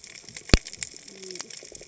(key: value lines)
label: biophony, cascading saw
recorder: HydroMoth